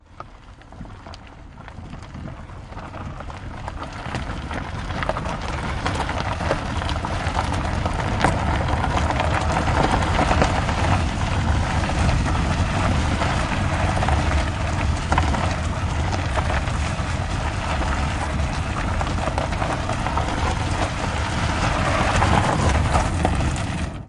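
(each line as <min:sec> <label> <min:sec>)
0:00.1 A car travels over gravel with a deep, bassy rumble that gradually increases in volume. 0:24.1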